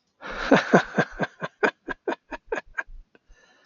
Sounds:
Laughter